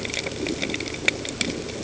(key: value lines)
label: ambient
recorder: HydroMoth